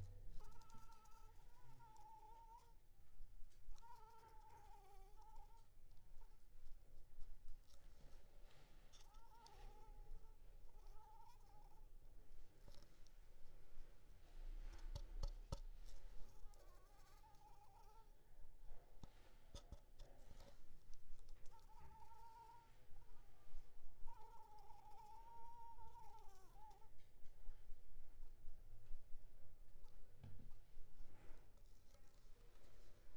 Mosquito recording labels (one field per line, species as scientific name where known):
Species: Anopheles arabiensis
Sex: female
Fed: unfed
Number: one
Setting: cup